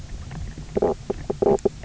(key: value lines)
label: biophony, knock croak
recorder: SoundTrap 300